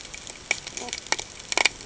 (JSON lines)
{"label": "ambient", "recorder": "HydroMoth"}